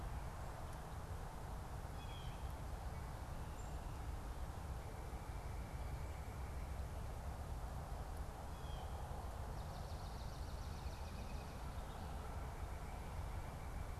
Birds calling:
Swamp Sparrow (Melospiza georgiana)
Black-capped Chickadee (Poecile atricapillus)
Blue Jay (Cyanocitta cristata)

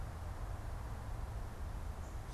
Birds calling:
Gray Catbird (Dumetella carolinensis)

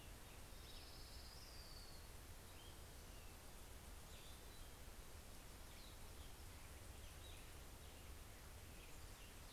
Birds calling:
Black-headed Grosbeak (Pheucticus melanocephalus)
Orange-crowned Warbler (Leiothlypis celata)
Cassin's Vireo (Vireo cassinii)

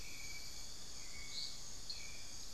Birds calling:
Amazonian Pygmy-Owl (Glaucidium hardyi)
Hauxwell's Thrush (Turdus hauxwelli)
unidentified bird

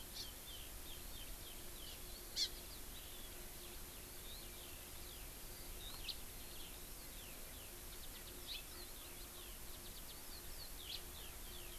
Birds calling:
Hawaii Amakihi (Chlorodrepanis virens)
House Finch (Haemorhous mexicanus)
Eurasian Skylark (Alauda arvensis)

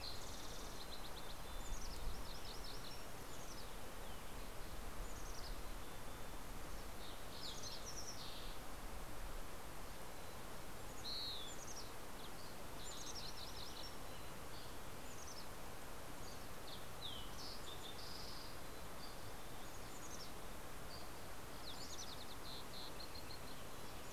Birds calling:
Fox Sparrow (Passerella iliaca)
Mountain Chickadee (Poecile gambeli)
Western Wood-Pewee (Contopus sordidulus)
Dusky Flycatcher (Empidonax oberholseri)
MacGillivray's Warbler (Geothlypis tolmiei)

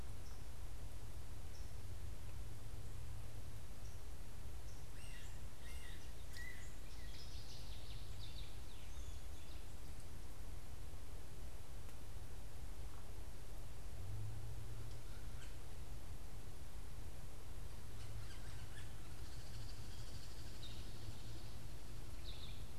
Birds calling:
unidentified bird
Yellow-bellied Sapsucker (Sphyrapicus varius)

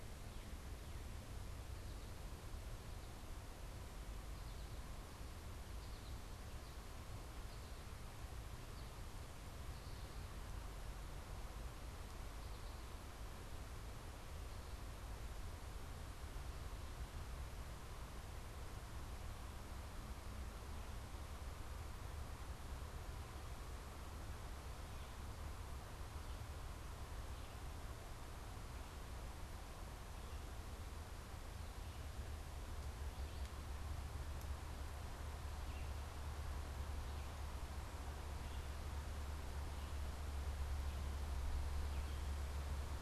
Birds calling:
Red-eyed Vireo (Vireo olivaceus)
American Goldfinch (Spinus tristis)

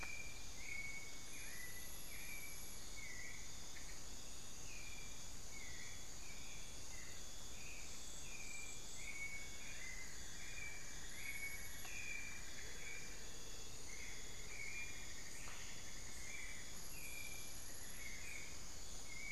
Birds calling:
Cinnamon-throated Woodcreeper (Dendrexetastes rufigula)
Amazonian Motmot (Momotus momota)
Amazonian Barred-Woodcreeper (Dendrocolaptes certhia)
White-necked Thrush (Turdus albicollis)

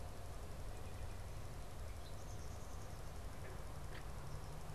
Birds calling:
Red-winged Blackbird (Agelaius phoeniceus)

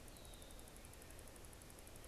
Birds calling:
Red-winged Blackbird (Agelaius phoeniceus)

